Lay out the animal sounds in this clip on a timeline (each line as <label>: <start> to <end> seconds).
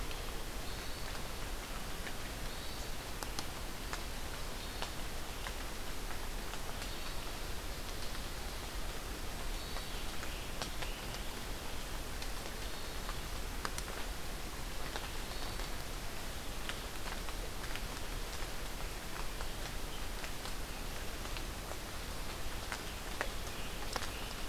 Hermit Thrush (Catharus guttatus): 0.4 to 1.4 seconds
Hermit Thrush (Catharus guttatus): 2.2 to 3.1 seconds
Hermit Thrush (Catharus guttatus): 4.3 to 5.1 seconds
Hermit Thrush (Catharus guttatus): 6.6 to 7.3 seconds
Hermit Thrush (Catharus guttatus): 9.4 to 10.2 seconds
Scarlet Tanager (Piranga olivacea): 10.1 to 11.5 seconds
Hermit Thrush (Catharus guttatus): 12.2 to 13.2 seconds
Hermit Thrush (Catharus guttatus): 15.1 to 16.0 seconds
Scarlet Tanager (Piranga olivacea): 22.6 to 24.5 seconds